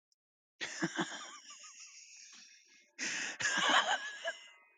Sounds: Laughter